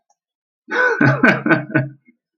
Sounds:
Laughter